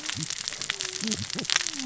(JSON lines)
{"label": "biophony, cascading saw", "recorder": "SoundTrap 600 or HydroMoth"}